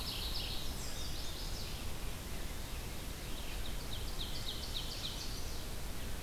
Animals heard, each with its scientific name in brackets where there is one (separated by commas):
Red-eyed Vireo (Vireo olivaceus), Chestnut-sided Warbler (Setophaga pensylvanica), Mourning Warbler (Geothlypis philadelphia), Red Squirrel (Tamiasciurus hudsonicus), Ovenbird (Seiurus aurocapilla)